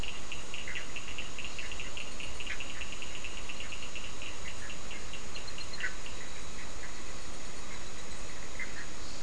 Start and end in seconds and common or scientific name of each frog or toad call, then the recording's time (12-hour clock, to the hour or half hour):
0.0	6.8	Cochran's lime tree frog
0.0	9.2	Bischoff's tree frog
7:30pm